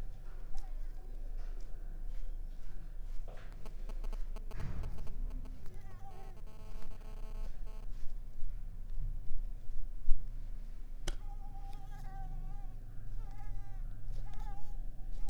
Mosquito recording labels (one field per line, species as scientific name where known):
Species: Mansonia uniformis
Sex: female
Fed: unfed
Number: one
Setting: cup